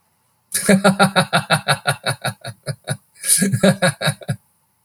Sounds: Laughter